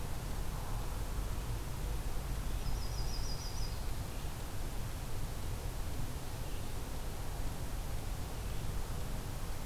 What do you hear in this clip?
Red-eyed Vireo, Yellow-rumped Warbler